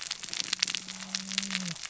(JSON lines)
{"label": "biophony, cascading saw", "recorder": "SoundTrap 600 or HydroMoth"}